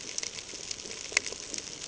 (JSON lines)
{"label": "ambient", "recorder": "HydroMoth"}